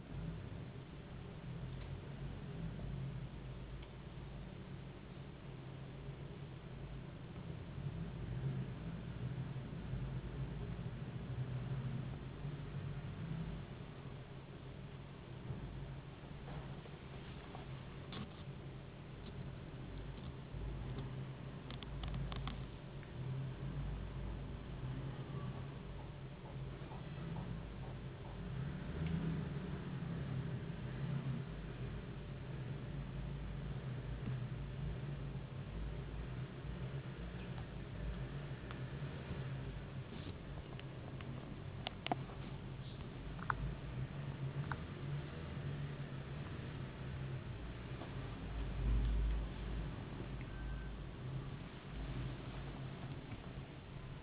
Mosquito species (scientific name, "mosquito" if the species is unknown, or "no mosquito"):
no mosquito